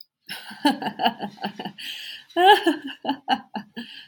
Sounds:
Laughter